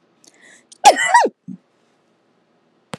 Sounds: Sneeze